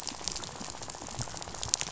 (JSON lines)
{"label": "biophony, rattle", "recorder": "SoundTrap 500"}